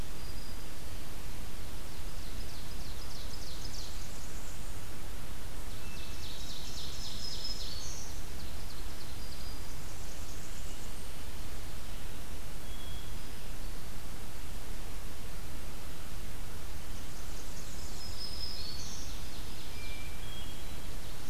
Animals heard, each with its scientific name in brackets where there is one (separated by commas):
Hermit Thrush (Catharus guttatus), Black-throated Green Warbler (Setophaga virens), Ovenbird (Seiurus aurocapilla), Blackburnian Warbler (Setophaga fusca)